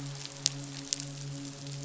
{"label": "biophony, midshipman", "recorder": "SoundTrap 500"}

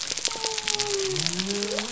{"label": "biophony", "recorder": "SoundTrap 300"}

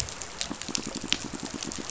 {"label": "biophony, pulse", "recorder": "SoundTrap 500"}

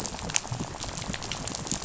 {"label": "biophony, rattle", "recorder": "SoundTrap 500"}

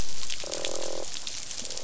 {"label": "biophony, croak", "recorder": "SoundTrap 500"}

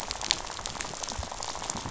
{"label": "biophony, rattle", "recorder": "SoundTrap 500"}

